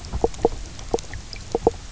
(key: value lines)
label: biophony, knock croak
recorder: SoundTrap 300